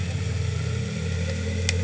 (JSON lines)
{"label": "anthrophony, boat engine", "recorder": "HydroMoth"}